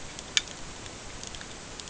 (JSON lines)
{"label": "ambient", "recorder": "HydroMoth"}